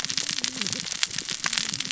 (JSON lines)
{"label": "biophony, cascading saw", "recorder": "SoundTrap 600 or HydroMoth"}